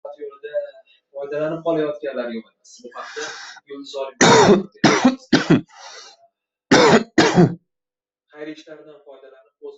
{"expert_labels": [{"quality": "ok", "cough_type": "unknown", "dyspnea": false, "wheezing": false, "stridor": false, "choking": false, "congestion": false, "nothing": true, "diagnosis": "lower respiratory tract infection", "severity": "mild"}]}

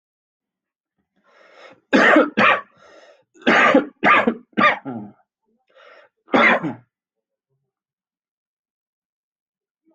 {"expert_labels": [{"quality": "ok", "cough_type": "unknown", "dyspnea": false, "wheezing": false, "stridor": false, "choking": false, "congestion": false, "nothing": true, "diagnosis": "lower respiratory tract infection", "severity": "mild"}]}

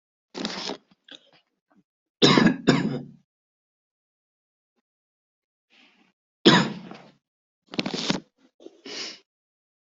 {"expert_labels": [{"quality": "ok", "cough_type": "wet", "dyspnea": false, "wheezing": false, "stridor": false, "choking": false, "congestion": true, "nothing": false, "diagnosis": "lower respiratory tract infection", "severity": "mild"}], "age": 22, "gender": "male", "respiratory_condition": false, "fever_muscle_pain": false, "status": "COVID-19"}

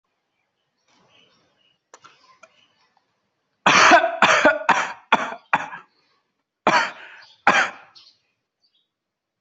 {"expert_labels": [{"quality": "good", "cough_type": "dry", "dyspnea": false, "wheezing": false, "stridor": false, "choking": false, "congestion": false, "nothing": true, "diagnosis": "obstructive lung disease", "severity": "severe"}], "gender": "female", "respiratory_condition": false, "fever_muscle_pain": false, "status": "healthy"}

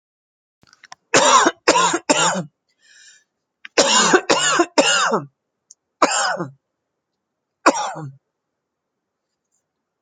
{"expert_labels": [{"quality": "good", "cough_type": "dry", "dyspnea": false, "wheezing": false, "stridor": false, "choking": false, "congestion": false, "nothing": true, "diagnosis": "upper respiratory tract infection", "severity": "mild"}], "age": 37, "gender": "female", "respiratory_condition": false, "fever_muscle_pain": false, "status": "symptomatic"}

